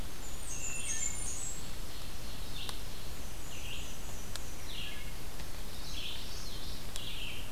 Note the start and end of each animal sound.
[0.00, 7.51] Red-eyed Vireo (Vireo olivaceus)
[0.04, 2.04] Blackburnian Warbler (Setophaga fusca)
[0.52, 1.21] Wood Thrush (Hylocichla mustelina)
[1.40, 3.28] Ovenbird (Seiurus aurocapilla)
[3.13, 4.71] Black-and-white Warbler (Mniotilta varia)
[4.66, 5.35] Wood Thrush (Hylocichla mustelina)
[5.62, 6.93] Common Yellowthroat (Geothlypis trichas)

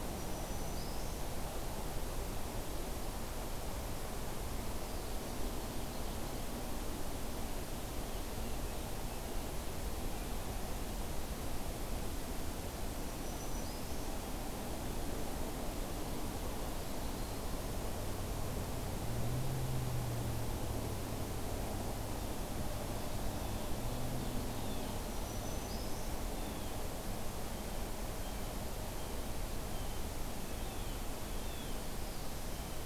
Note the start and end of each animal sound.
[0.00, 1.25] Black-throated Green Warbler (Setophaga virens)
[12.98, 14.05] Black-throated Green Warbler (Setophaga virens)
[23.21, 26.89] Blue Jay (Cyanocitta cristata)
[25.09, 26.14] Black-throated Green Warbler (Setophaga virens)
[27.40, 31.86] Blue Jay (Cyanocitta cristata)

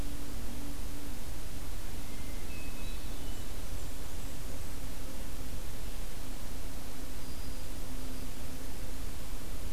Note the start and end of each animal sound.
[1.98, 3.58] Hermit Thrush (Catharus guttatus)
[3.16, 4.64] Blackburnian Warbler (Setophaga fusca)
[7.02, 8.36] Black-throated Green Warbler (Setophaga virens)

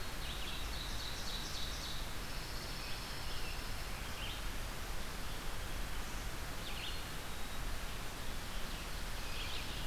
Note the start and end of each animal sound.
[0.00, 3.63] Red-eyed Vireo (Vireo olivaceus)
[0.05, 2.06] Ovenbird (Seiurus aurocapilla)
[2.13, 4.18] Pine Warbler (Setophaga pinus)
[3.98, 9.87] Red-eyed Vireo (Vireo olivaceus)
[6.58, 7.83] Black-capped Chickadee (Poecile atricapillus)

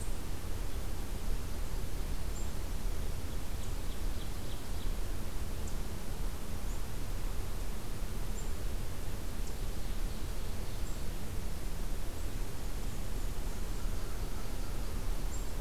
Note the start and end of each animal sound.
[2.87, 5.00] Ovenbird (Seiurus aurocapilla)
[9.66, 11.14] Ovenbird (Seiurus aurocapilla)
[13.57, 14.91] American Crow (Corvus brachyrhynchos)

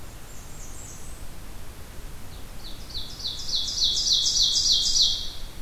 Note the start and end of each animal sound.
[0.00, 1.45] Blackburnian Warbler (Setophaga fusca)
[2.25, 5.61] Ovenbird (Seiurus aurocapilla)

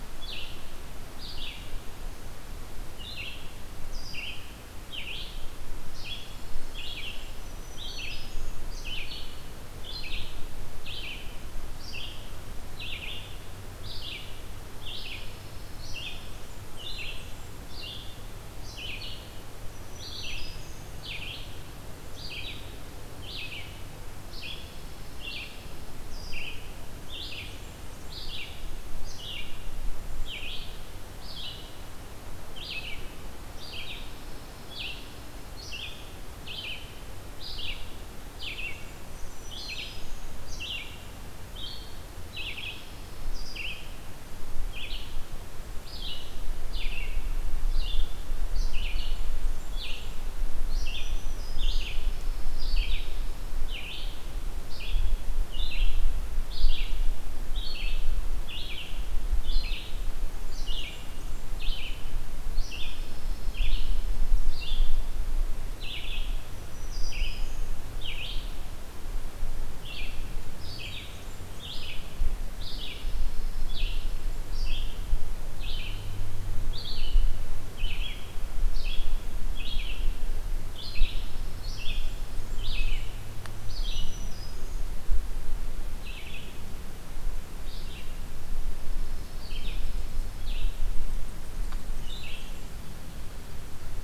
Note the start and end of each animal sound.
[0.00, 47.05] Red-eyed Vireo (Vireo olivaceus)
[5.82, 7.50] Pine Warbler (Setophaga pinus)
[6.07, 7.39] Blackburnian Warbler (Setophaga fusca)
[7.33, 8.57] Black-throated Green Warbler (Setophaga virens)
[14.83, 16.44] Pine Warbler (Setophaga pinus)
[16.48, 17.60] Blackburnian Warbler (Setophaga fusca)
[19.69, 20.98] Black-throated Green Warbler (Setophaga virens)
[24.17, 26.05] Pine Warbler (Setophaga pinus)
[27.23, 28.31] Blackburnian Warbler (Setophaga fusca)
[33.77, 35.52] Pine Warbler (Setophaga pinus)
[38.70, 40.34] Blackburnian Warbler (Setophaga fusca)
[39.09, 40.34] Black-throated Green Warbler (Setophaga virens)
[42.22, 43.98] Pine Warbler (Setophaga pinus)
[47.68, 94.03] Red-eyed Vireo (Vireo olivaceus)
[49.16, 50.31] Blackburnian Warbler (Setophaga fusca)
[50.95, 51.91] Black-throated Green Warbler (Setophaga virens)
[51.80, 53.71] Pine Warbler (Setophaga pinus)
[60.42, 61.62] Blackburnian Warbler (Setophaga fusca)
[62.83, 64.44] Pine Warbler (Setophaga pinus)
[66.55, 67.73] Black-throated Green Warbler (Setophaga virens)
[70.73, 71.91] Blackburnian Warbler (Setophaga fusca)
[72.49, 74.38] Pine Warbler (Setophaga pinus)
[80.90, 82.20] Pine Warbler (Setophaga pinus)
[81.80, 83.11] Blackburnian Warbler (Setophaga fusca)
[83.60, 84.92] Black-throated Green Warbler (Setophaga virens)
[89.06, 90.55] Dark-eyed Junco (Junco hyemalis)
[91.63, 92.69] Blackburnian Warbler (Setophaga fusca)

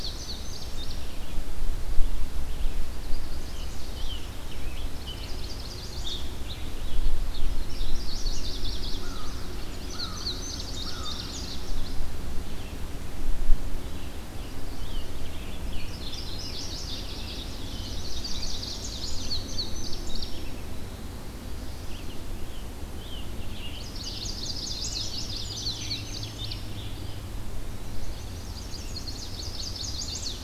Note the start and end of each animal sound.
[0.00, 1.11] Indigo Bunting (Passerina cyanea)
[0.00, 2.92] Red-eyed Vireo (Vireo olivaceus)
[2.78, 4.02] Chestnut-sided Warbler (Setophaga pensylvanica)
[3.39, 5.39] Scarlet Tanager (Piranga olivacea)
[4.90, 6.21] Chestnut-sided Warbler (Setophaga pensylvanica)
[6.02, 7.93] Scarlet Tanager (Piranga olivacea)
[7.58, 9.71] Chestnut-sided Warbler (Setophaga pensylvanica)
[8.88, 11.48] American Crow (Corvus brachyrhynchos)
[9.71, 11.64] Indigo Bunting (Passerina cyanea)
[13.77, 16.63] Scarlet Tanager (Piranga olivacea)
[15.71, 19.34] Chestnut-sided Warbler (Setophaga pensylvanica)
[19.07, 20.56] Indigo Bunting (Passerina cyanea)
[21.76, 26.68] Scarlet Tanager (Piranga olivacea)
[23.63, 25.72] Chestnut-sided Warbler (Setophaga pensylvanica)
[25.06, 27.35] Indigo Bunting (Passerina cyanea)
[26.88, 28.37] Eastern Wood-Pewee (Contopus virens)
[27.77, 30.43] Chestnut-sided Warbler (Setophaga pensylvanica)

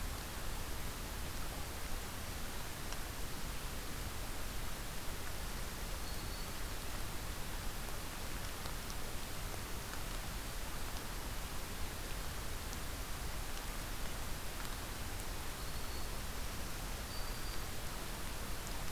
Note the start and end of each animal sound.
[5.85, 6.64] Black-throated Green Warbler (Setophaga virens)
[15.29, 16.19] Black-throated Green Warbler (Setophaga virens)
[16.77, 17.81] Black-throated Green Warbler (Setophaga virens)

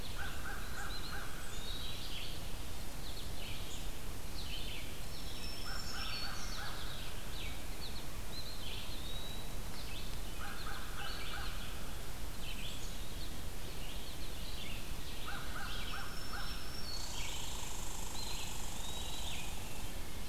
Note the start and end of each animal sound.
[0.00, 20.29] Red-eyed Vireo (Vireo olivaceus)
[0.01, 1.50] American Crow (Corvus brachyrhynchos)
[0.64, 2.08] Eastern Wood-Pewee (Contopus virens)
[2.88, 3.30] American Goldfinch (Spinus tristis)
[4.91, 7.04] Black-throated Green Warbler (Setophaga virens)
[5.25, 7.99] American Crow (Corvus brachyrhynchos)
[6.40, 7.06] American Goldfinch (Spinus tristis)
[7.70, 8.09] American Goldfinch (Spinus tristis)
[8.08, 9.56] Eastern Wood-Pewee (Contopus virens)
[10.04, 12.77] American Crow (Corvus brachyrhynchos)
[10.23, 11.01] American Goldfinch (Spinus tristis)
[14.97, 16.68] American Crow (Corvus brachyrhynchos)
[15.74, 17.48] Black-throated Green Warbler (Setophaga virens)
[16.80, 20.06] Red Squirrel (Tamiasciurus hudsonicus)
[17.91, 19.60] Eastern Wood-Pewee (Contopus virens)

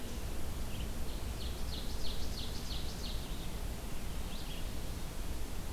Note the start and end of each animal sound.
[0.00, 5.73] Red-eyed Vireo (Vireo olivaceus)
[0.83, 3.43] Ovenbird (Seiurus aurocapilla)

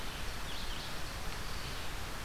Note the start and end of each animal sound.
[0.00, 2.25] Red-eyed Vireo (Vireo olivaceus)

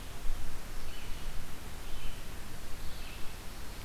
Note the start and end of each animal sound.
[0.00, 3.84] Red-eyed Vireo (Vireo olivaceus)

